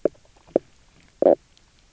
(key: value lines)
label: biophony, knock croak
recorder: SoundTrap 300